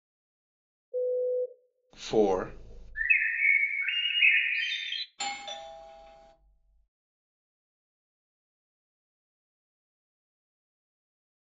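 At the start, a telephone can be heard. Then, about 2 seconds in, someone says "four". After that, about 3 seconds in, a bird is audible. Finally, about 5 seconds in, you can hear a doorbell.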